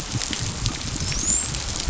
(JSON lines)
{"label": "biophony, dolphin", "recorder": "SoundTrap 500"}